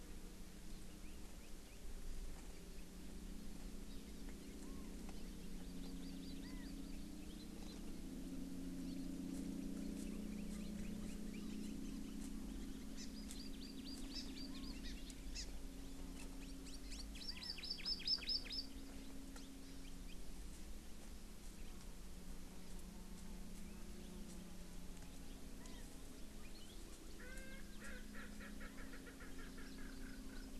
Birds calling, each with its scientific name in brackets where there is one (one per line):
Hawaii Amakihi (Chlorodrepanis virens)
Chinese Hwamei (Garrulax canorus)
Erckel's Francolin (Pternistis erckelii)